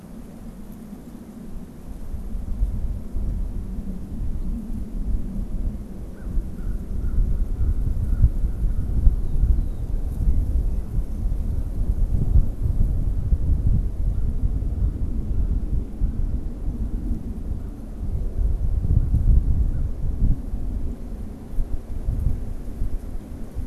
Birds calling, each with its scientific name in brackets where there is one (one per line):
American Crow (Corvus brachyrhynchos)